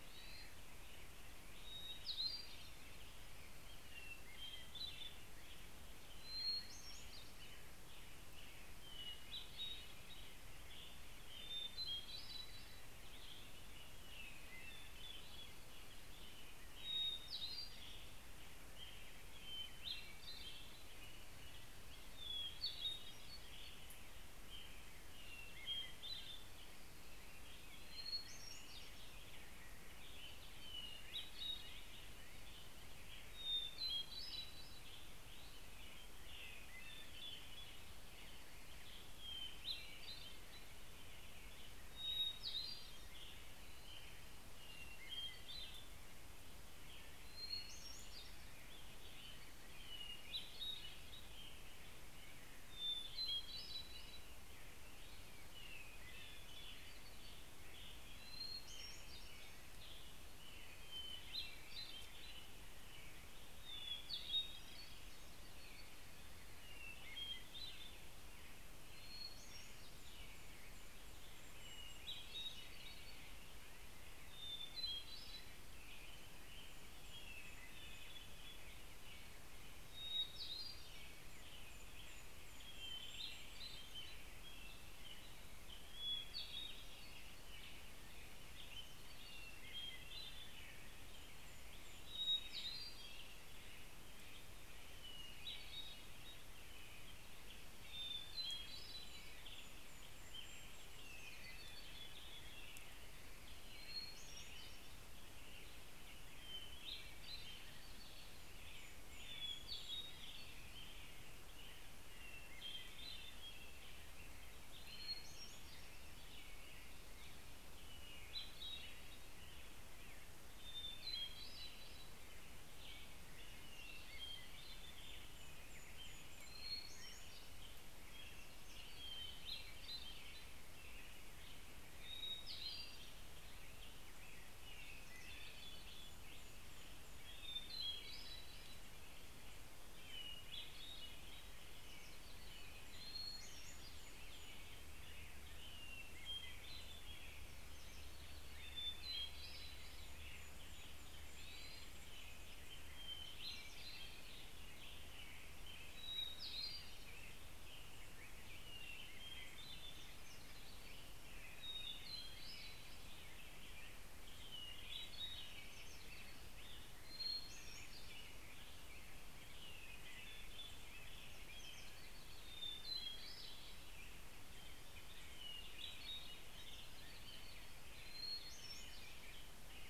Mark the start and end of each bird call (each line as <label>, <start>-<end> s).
Hermit Thrush (Catharus guttatus), 0.0-29.6 s
American Robin (Turdus migratorius), 0.0-83.6 s
Hermit Thrush (Catharus guttatus), 29.9-83.6 s
Golden-crowned Kinglet (Regulus satrapa), 68.3-74.1 s
Golden-crowned Kinglet (Regulus satrapa), 75.6-79.3 s
Golden-crowned Kinglet (Regulus satrapa), 80.4-83.6 s
American Robin (Turdus migratorius), 84.1-137.6 s
Hermit Thrush (Catharus guttatus), 84.4-137.6 s
Golden-crowned Kinglet (Regulus satrapa), 88.8-93.5 s
Golden-crowned Kinglet (Regulus satrapa), 97.2-102.5 s
Golden-crowned Kinglet (Regulus satrapa), 107.3-111.7 s
Golden-crowned Kinglet (Regulus satrapa), 123.4-127.6 s
Hermit Warbler (Setophaga occidentalis), 134.0-136.8 s
Golden-crowned Kinglet (Regulus satrapa), 134.6-137.6 s
American Robin (Turdus migratorius), 138.0-179.9 s
Hermit Thrush (Catharus guttatus), 138.2-179.9 s
Hermit Warbler (Setophaga occidentalis), 140.9-143.0 s
Golden-crowned Kinglet (Regulus satrapa), 141.1-146.5 s
Hermit Warbler (Setophaga occidentalis), 146.9-149.1 s
Golden-crowned Kinglet (Regulus satrapa), 149.1-154.0 s
Hermit Warbler (Setophaga occidentalis), 159.8-161.9 s
Hermit Warbler (Setophaga occidentalis), 171.2-172.9 s
Hermit Warbler (Setophaga occidentalis), 175.9-178.3 s
Golden-crowned Kinglet (Regulus satrapa), 178.7-179.9 s